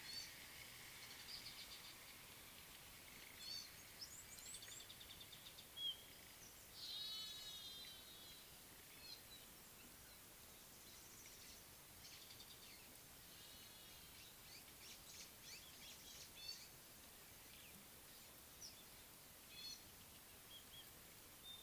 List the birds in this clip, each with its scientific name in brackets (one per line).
Gray-backed Camaroptera (Camaroptera brevicaudata)
Red-cheeked Cordonbleu (Uraeginthus bengalus)